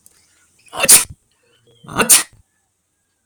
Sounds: Sneeze